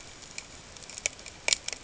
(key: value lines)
label: ambient
recorder: HydroMoth